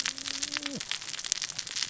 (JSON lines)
{"label": "biophony, cascading saw", "recorder": "SoundTrap 600 or HydroMoth"}